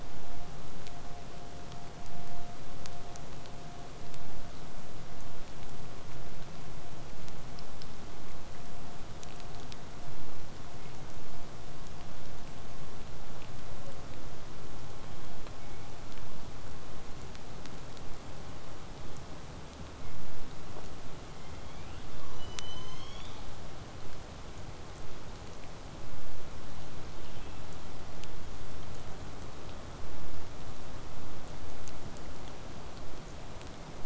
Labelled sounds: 5.0	10.0	vessel noise, 0 to 8.0 kHz
13.7	14.1	killer whale, southern resident, 0.35 to 1.2 kHz
15.0	15.9	killer whale, southern resident, 1.9 to 3.5 kHz
22.2	23.7	killer whale, southern resident, J pod, call S01, 0.88 to 8.0 kHz
27.1	27.6	killer whale, southern resident, 2.4 to 3.5 kHz

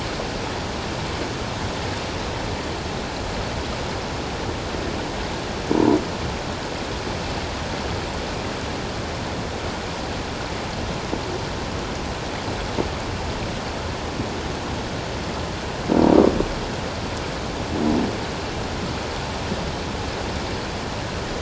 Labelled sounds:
5.7	6.0	croaking sound likely from a nearby submerged object, 0.84 to 1.0 kHz

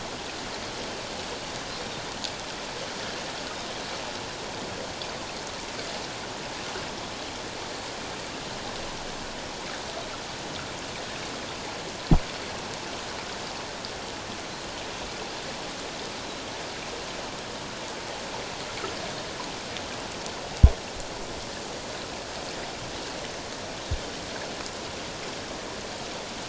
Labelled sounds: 1.7	2.0	Pacific white-sided dolphin, 3.6 to 3.8 kHz

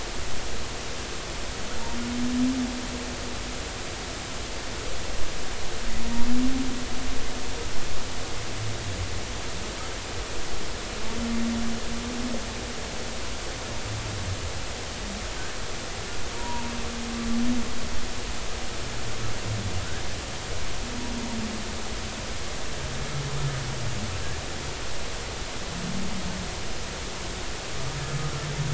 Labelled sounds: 16.3	16.7	humpback whale, 0.86 to 1.0 kHz

